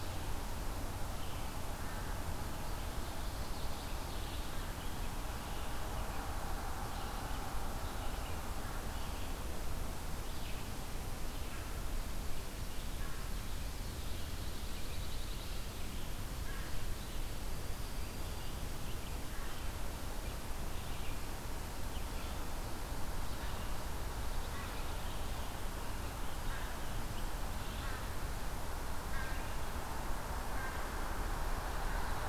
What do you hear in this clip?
Common Yellowthroat, Red-eyed Vireo, Pine Warbler, American Crow, Broad-winged Hawk